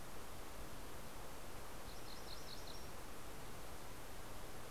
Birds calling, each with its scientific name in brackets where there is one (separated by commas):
MacGillivray's Warbler (Geothlypis tolmiei)